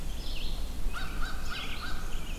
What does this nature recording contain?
Red-eyed Vireo, American Crow